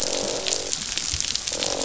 {"label": "biophony, croak", "recorder": "SoundTrap 500"}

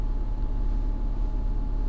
{"label": "anthrophony, boat engine", "recorder": "SoundTrap 300"}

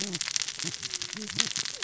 {"label": "biophony, cascading saw", "recorder": "SoundTrap 600 or HydroMoth"}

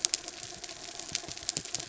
{"label": "anthrophony, mechanical", "recorder": "SoundTrap 300"}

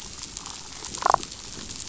{"label": "biophony, damselfish", "recorder": "SoundTrap 500"}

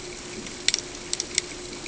{"label": "ambient", "recorder": "HydroMoth"}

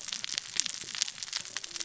{"label": "biophony, cascading saw", "recorder": "SoundTrap 600 or HydroMoth"}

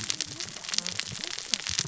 {"label": "biophony, cascading saw", "recorder": "SoundTrap 600 or HydroMoth"}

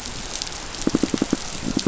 {"label": "biophony, pulse", "recorder": "SoundTrap 500"}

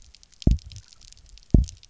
{"label": "biophony, double pulse", "recorder": "SoundTrap 300"}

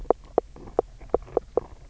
{"label": "biophony, knock croak", "recorder": "SoundTrap 300"}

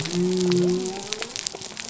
{"label": "biophony", "recorder": "SoundTrap 300"}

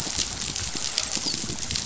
{"label": "biophony, dolphin", "recorder": "SoundTrap 500"}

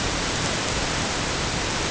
{"label": "ambient", "recorder": "HydroMoth"}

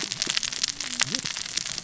{"label": "biophony, cascading saw", "recorder": "SoundTrap 600 or HydroMoth"}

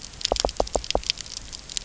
{"label": "biophony, knock", "recorder": "SoundTrap 300"}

